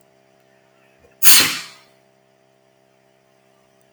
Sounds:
Sneeze